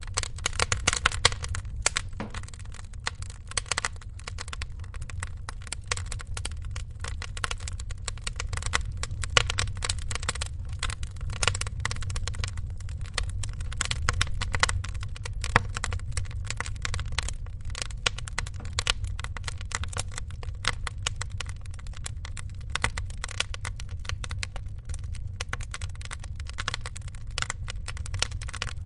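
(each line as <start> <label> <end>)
0.0 Wood crackles in a fireplace with flames crackling in the background. 28.9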